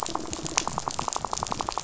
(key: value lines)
label: biophony, rattle
recorder: SoundTrap 500